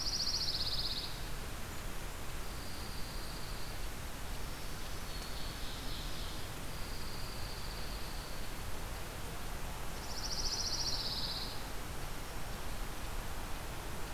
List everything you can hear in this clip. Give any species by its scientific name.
Setophaga pinus, Junco hyemalis, Setophaga virens, Seiurus aurocapilla